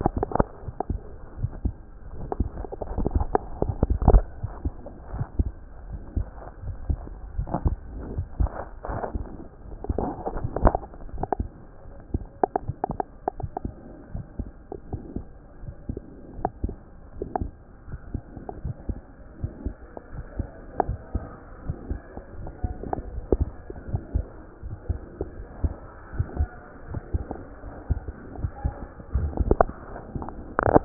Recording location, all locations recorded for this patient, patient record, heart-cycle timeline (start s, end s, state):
aortic valve (AV)
aortic valve (AV)+mitral valve (MV)
#Age: Child
#Sex: Male
#Height: 92.0 cm
#Weight: 12.6 kg
#Pregnancy status: False
#Murmur: Absent
#Murmur locations: nan
#Most audible location: nan
#Systolic murmur timing: nan
#Systolic murmur shape: nan
#Systolic murmur grading: nan
#Systolic murmur pitch: nan
#Systolic murmur quality: nan
#Diastolic murmur timing: nan
#Diastolic murmur shape: nan
#Diastolic murmur grading: nan
#Diastolic murmur pitch: nan
#Diastolic murmur quality: nan
#Outcome: Abnormal
#Campaign: 2014 screening campaign
0.00	13.74	unannotated
13.74	14.14	diastole
14.14	14.24	S1
14.24	14.40	systole
14.40	14.50	S2
14.50	14.90	diastole
14.90	15.02	S1
15.02	15.16	systole
15.16	15.26	S2
15.26	15.62	diastole
15.62	15.74	S1
15.74	15.88	systole
15.88	15.98	S2
15.98	16.38	diastole
16.38	16.50	S1
16.50	16.64	systole
16.64	16.74	S2
16.74	17.18	diastole
17.18	17.26	S1
17.26	17.40	systole
17.40	17.50	S2
17.50	17.88	diastole
17.88	17.98	S1
17.98	18.12	systole
18.12	18.22	S2
18.22	18.64	diastole
18.64	18.76	S1
18.76	18.88	systole
18.88	18.98	S2
18.98	19.40	diastole
19.40	19.52	S1
19.52	19.64	systole
19.64	19.74	S2
19.74	20.12	diastole
20.12	20.24	S1
20.24	20.38	systole
20.38	20.48	S2
20.48	20.86	diastole
20.86	20.98	S1
20.98	21.14	systole
21.14	21.24	S2
21.24	21.66	diastole
21.66	21.78	S1
21.78	21.90	systole
21.90	22.00	S2
22.00	22.36	diastole
22.36	22.50	S1
22.50	22.62	systole
22.62	22.74	S2
22.74	23.10	diastole
23.10	23.22	S1
23.22	23.38	systole
23.38	23.48	S2
23.48	23.90	diastole
23.90	24.02	S1
24.02	24.14	systole
24.14	24.26	S2
24.26	24.64	diastole
24.64	24.76	S1
24.76	24.88	systole
24.88	25.00	S2
25.00	25.36	diastole
25.36	25.44	S1
25.44	25.62	systole
25.62	25.74	S2
25.74	26.16	diastole
26.16	26.28	S1
26.28	26.38	systole
26.38	26.50	S2
26.50	26.90	diastole
26.90	27.00	S1
27.00	27.14	systole
27.14	27.24	S2
27.24	27.88	diastole
27.88	30.85	unannotated